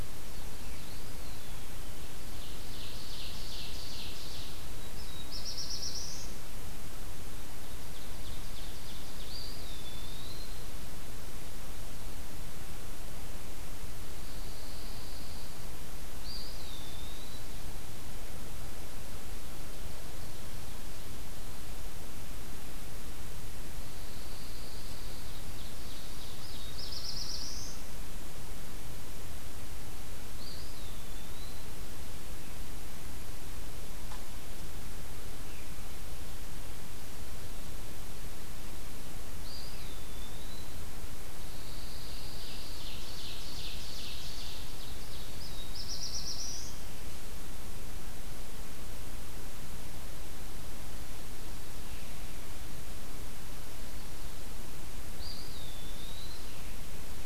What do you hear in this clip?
Eastern Wood-Pewee, Ovenbird, Black-throated Blue Warbler, Pine Warbler